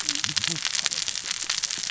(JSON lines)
{"label": "biophony, cascading saw", "recorder": "SoundTrap 600 or HydroMoth"}